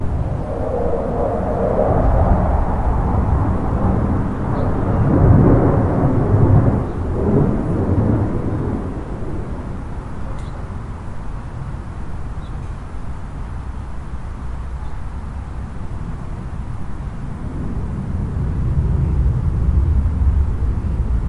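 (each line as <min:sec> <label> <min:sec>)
0:00.0 A loud jet flies overhead accompanied by strong wind. 0:09.3
0:10.4 White noise with birds singing softly in the background and slight traffic noise at the end. 0:21.3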